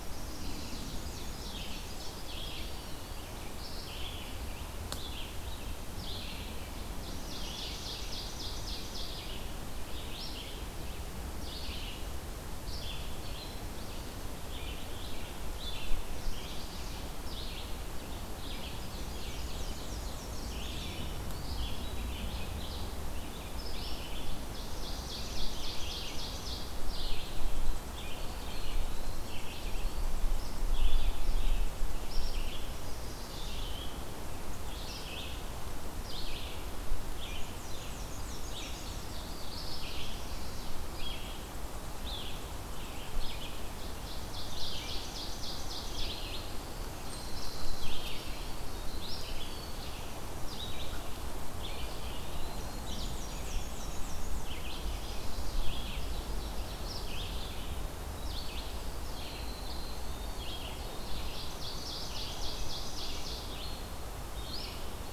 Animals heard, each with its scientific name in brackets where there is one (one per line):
Eastern Wood-Pewee (Contopus virens)
Red-eyed Vireo (Vireo olivaceus)
Black-and-white Warbler (Mniotilta varia)
Black-throated Green Warbler (Setophaga virens)
Ovenbird (Seiurus aurocapilla)
Chestnut-sided Warbler (Setophaga pensylvanica)